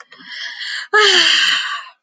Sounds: Sigh